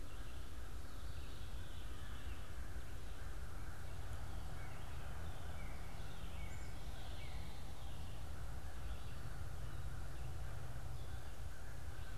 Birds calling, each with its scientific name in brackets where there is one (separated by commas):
Black-capped Chickadee (Poecile atricapillus), Veery (Catharus fuscescens), American Crow (Corvus brachyrhynchos), Northern Cardinal (Cardinalis cardinalis)